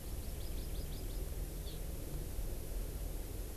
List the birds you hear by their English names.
Hawaii Amakihi